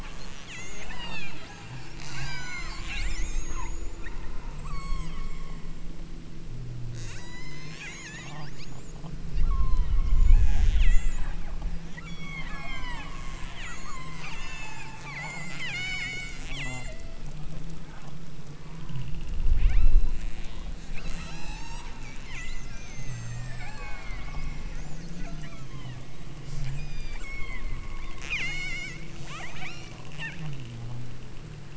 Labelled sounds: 0.0	5.2	killer whale, southern Alaska resident, 0.23 to 8.0 kHz
6.9	8.4	killer whale, southern Alaska resident, 0.68 to 8.0 kHz
9.4	11.3	killer whale, southern Alaska resident, 0.52 to 8.0 kHz
12.0	17.1	killer whale, southern Alaska resident, 0.48 to 8.0 kHz
17.7	18.2	killer whale, southern Alaska resident, 0.55 to 1.7 kHz
18.5	19.1	killer whale, southern Alaska resident, 0.80 to 2.9 kHz
19.5	24.8	killer whale, southern Alaska resident, 0.34 to 8.0 kHz
25.1	26.1	killer whale, southern Alaska resident, 0.50 to 5.7 kHz
26.4	30.7	killer whale, southern Alaska resident, 0.50 to 8.0 kHz

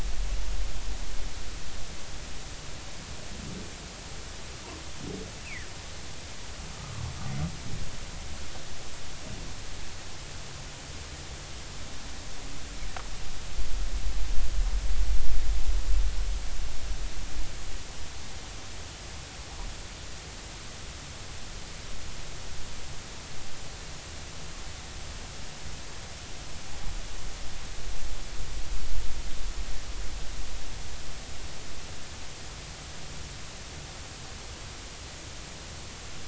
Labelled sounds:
5.4	5.7	humpback whale, 1.7 to 2.8 kHz
6.8	7.1	humpback whale, 1.1 to 1.3 kHz

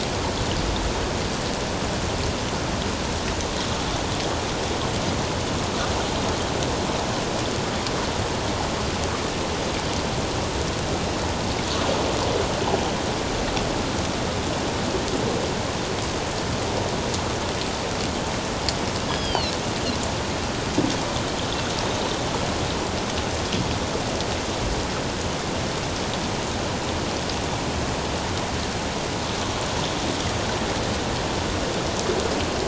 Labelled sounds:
19.1	19.5	Pacific white-sided dolphin, 2.6 to 5.1 kHz

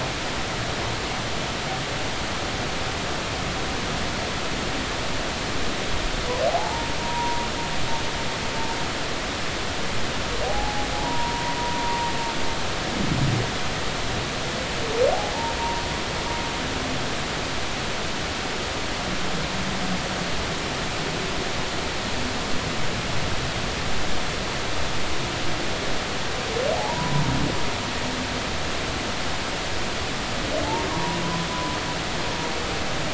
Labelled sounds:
6.5	7.5	humpback whale, 0.80 to 0.99 kHz
10.5	12.0	humpback whale, 0.80 to 1.1 kHz
15.6	15.8	humpback whale, 0.86 to 0.99 kHz
26.7	27.3	humpback whale, 0.80 to 1.0 kHz
30.9	31.2	humpback whale, 0.90 to 1.1 kHz
31.5	31.8	humpback whale, 0.96 to 1.0 kHz

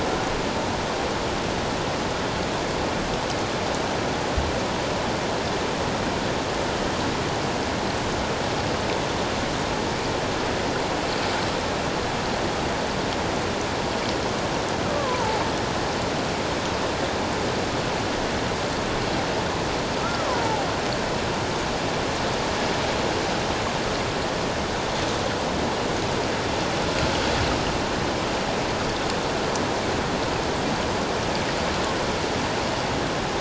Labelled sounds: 14.8	15.4	killer whale, Bigg's (transient), 0.78 to 1.5 kHz
20.0	20.7	killer whale, Bigg's (transient), 0.78 to 1.4 kHz

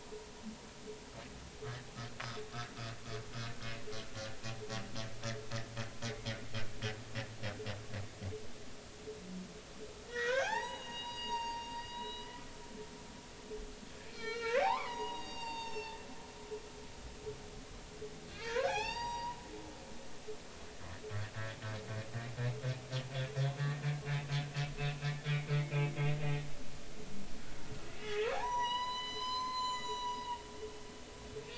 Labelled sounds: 10.1	12.3	humpback whale, 0.80 to 6.8 kHz
14.0	16.1	humpback whale, 0.80 to 6.6 kHz
18.4	19.4	humpback whale, 0.80 to 7.6 kHz
25.2	25.5	humpback whale, 2.1 to 2.3 kHz
28.0	30.2	humpback whale, 0.80 to 7.1 kHz

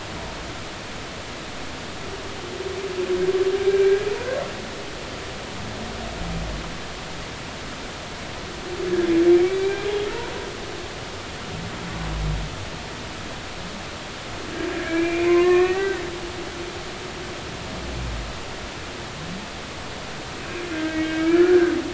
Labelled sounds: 3.7	4.1	humpback whale, 1.5 to 1.7 kHz
9.3	9.9	humpback whale, 2.2 to 2.4 kHz
14.7	16.0	humpback whale, 0.99 to 2.8 kHz
20.7	21.7	humpback whale, 1.2 to 2.9 kHz

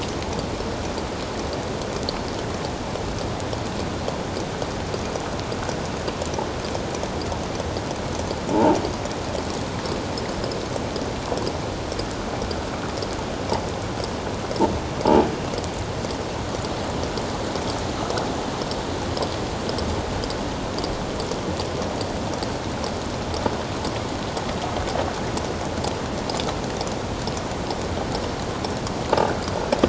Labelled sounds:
8.5	8.8	croaking sound likely from a nearby submerged object, 0.78 to 1.0 kHz

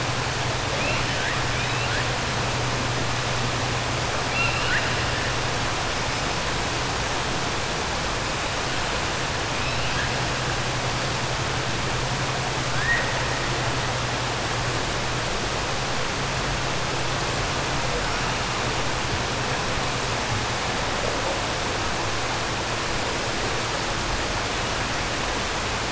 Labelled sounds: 4.2	5.0	killer whale, 1.4 to 3.0 kHz

